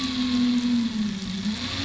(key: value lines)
label: anthrophony, boat engine
recorder: SoundTrap 500